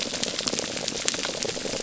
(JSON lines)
{"label": "biophony", "recorder": "SoundTrap 300"}